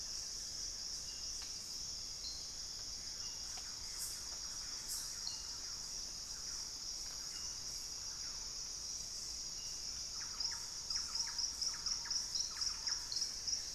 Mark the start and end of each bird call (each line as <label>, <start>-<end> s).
Buff-throated Woodcreeper (Xiphorhynchus guttatus), 0.0-1.4 s
Hauxwell's Thrush (Turdus hauxwelli), 0.0-5.5 s
Thrush-like Wren (Campylorhynchus turdinus), 2.5-13.7 s
Buff-throated Woodcreeper (Xiphorhynchus guttatus), 12.7-13.7 s
Hauxwell's Thrush (Turdus hauxwelli), 13.1-13.7 s